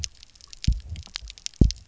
{"label": "biophony, double pulse", "recorder": "SoundTrap 300"}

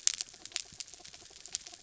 {"label": "anthrophony, mechanical", "recorder": "SoundTrap 300"}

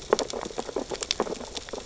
{"label": "biophony, sea urchins (Echinidae)", "recorder": "SoundTrap 600 or HydroMoth"}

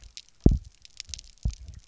{"label": "biophony, double pulse", "recorder": "SoundTrap 300"}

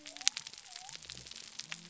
{"label": "biophony", "recorder": "SoundTrap 300"}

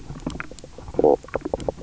{"label": "biophony, knock croak", "recorder": "SoundTrap 300"}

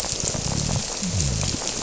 {"label": "biophony", "recorder": "SoundTrap 300"}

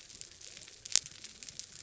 {"label": "biophony", "recorder": "SoundTrap 300"}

